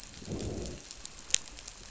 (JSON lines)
{"label": "biophony, growl", "recorder": "SoundTrap 500"}